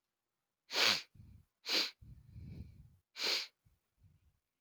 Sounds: Sniff